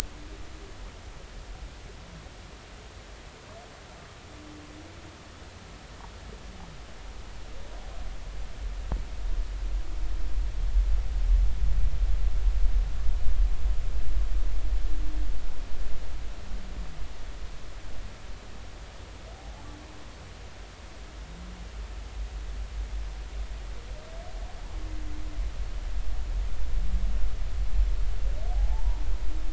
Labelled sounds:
28.5	29.0	humpback whale, 0.80 to 1.0 kHz

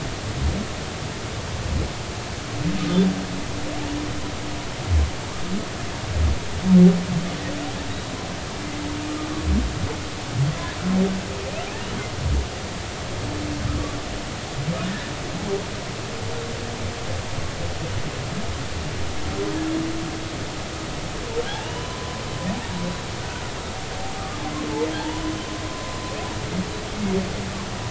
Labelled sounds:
21.6	22.2	humpback whale, 0.93 to 3.1 kHz
23.2	23.5	humpback whale, 1.4 to 1.6 kHz
25.0	25.2	humpback whale, 0.83 to 1.0 kHz

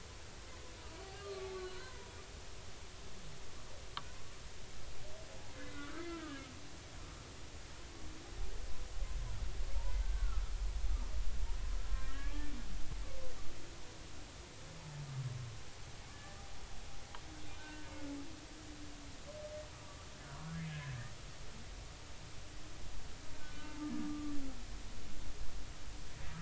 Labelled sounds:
0.8	2.1	humpback whale, 0.93 to 1.6 kHz
5.5	6.4	humpback whale, 1.1 to 2.2 kHz
10.0	10.5	humpback whale, 1.2 to 1.6 kHz
12.2	12.5	humpback whale, 1.1 to 1.2 kHz
16.1	16.4	humpback whale, 1.7 to 1.8 kHz
17.6	17.9	humpback whale, 1.4 to 1.6 kHz
20.7	20.9	humpback whale, 1.6 to 1.8 kHz
23.4	24.4	humpback whale, 1.1 to 1.6 kHz

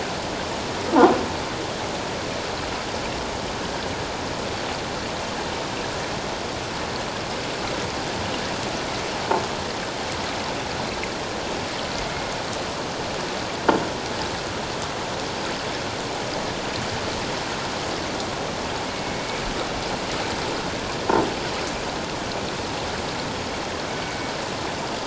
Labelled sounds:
19.0	19.3	killer whale, 2.16 to 2.25 kHz
23.9	24.3	killer whale, 2.1 to 2.3 kHz

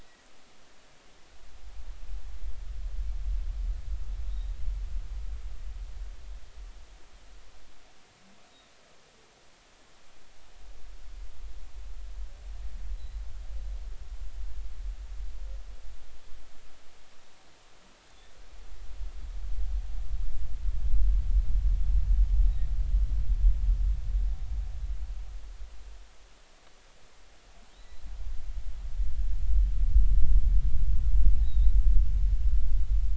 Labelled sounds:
0.0	0.2	humpback whale, 1.9 to 2.0 kHz
8.5	8.7	humpback whale, 3.7 to 3.9 kHz
12.9	13.2	humpback whale, 3.8 to 4.1 kHz
18.1	18.3	humpback whale, 3.4 to 3.8 kHz
27.7	28.1	humpback whale, 3.6 to 4.1 kHz
31.4	31.7	humpback whale, 3.6 to 4.0 kHz

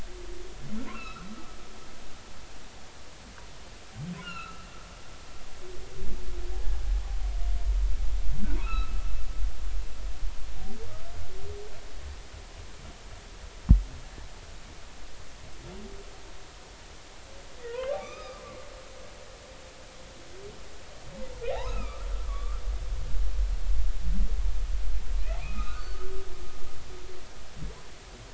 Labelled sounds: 0.9	1.3	humpback whale, 1.2 to 2.8 kHz
4.2	4.7	humpback whale, 1.2 to 4.3 kHz
8.6	8.9	humpback whale, 1.2 to 2.8 kHz
17.7	18.4	humpback whale, 0.90 to 5.1 kHz
21.5	23.0	humpback whale, 1.1 to 4.0 kHz
25.4	26.0	humpback whale, 1.1 to 2.7 kHz

